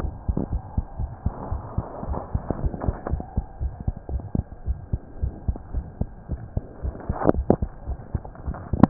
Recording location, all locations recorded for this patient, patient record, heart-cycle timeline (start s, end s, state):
pulmonary valve (PV)
aortic valve (AV)+pulmonary valve (PV)+tricuspid valve (TV)+mitral valve (MV)
#Age: Child
#Sex: Female
#Height: 103.0 cm
#Weight: 14.0 kg
#Pregnancy status: False
#Murmur: Present
#Murmur locations: mitral valve (MV)+pulmonary valve (PV)+tricuspid valve (TV)
#Most audible location: pulmonary valve (PV)
#Systolic murmur timing: Holosystolic
#Systolic murmur shape: Plateau
#Systolic murmur grading: I/VI
#Systolic murmur pitch: Low
#Systolic murmur quality: Blowing
#Diastolic murmur timing: nan
#Diastolic murmur shape: nan
#Diastolic murmur grading: nan
#Diastolic murmur pitch: nan
#Diastolic murmur quality: nan
#Outcome: Abnormal
#Campaign: 2015 screening campaign
0.00	0.48	unannotated
0.48	0.62	S1
0.62	0.74	systole
0.74	0.84	S2
0.84	0.98	diastole
0.98	1.10	S1
1.10	1.22	systole
1.22	1.34	S2
1.34	1.48	diastole
1.48	1.62	S1
1.62	1.74	systole
1.74	1.84	S2
1.84	2.04	diastole
2.04	2.18	S1
2.18	2.32	systole
2.32	2.42	S2
2.42	2.58	diastole
2.58	2.72	S1
2.72	2.86	systole
2.86	2.96	S2
2.96	3.10	diastole
3.10	3.24	S1
3.24	3.36	systole
3.36	3.46	S2
3.46	3.62	diastole
3.62	3.76	S1
3.76	3.86	systole
3.86	3.96	S2
3.96	4.12	diastole
4.12	4.22	S1
4.22	4.34	systole
4.34	4.48	S2
4.48	4.66	diastole
4.66	4.78	S1
4.78	4.92	systole
4.92	5.02	S2
5.02	5.20	diastole
5.20	5.34	S1
5.34	5.46	systole
5.46	5.58	S2
5.58	5.72	diastole
5.72	5.86	S1
5.86	6.00	systole
6.00	6.10	S2
6.10	6.30	diastole
6.30	6.42	S1
6.42	6.56	systole
6.56	6.66	S2
6.66	6.84	diastole
6.84	6.96	S1
6.96	7.08	systole
7.08	7.18	S2
7.18	7.35	diastole
7.35	7.45	S1
7.45	7.60	systole
7.60	7.72	S2
7.72	7.86	diastole
7.86	7.98	S1
7.98	8.13	systole
8.13	8.20	S2
8.20	8.44	diastole
8.44	8.58	S1
8.58	8.71	systole
8.71	8.77	S2
8.77	8.90	unannotated